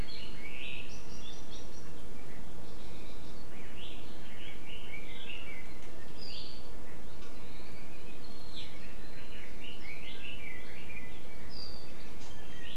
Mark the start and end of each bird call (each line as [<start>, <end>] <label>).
[3.43, 6.13] Red-billed Leiothrix (Leiothrix lutea)
[8.53, 11.43] Red-billed Leiothrix (Leiothrix lutea)
[12.23, 12.73] Iiwi (Drepanis coccinea)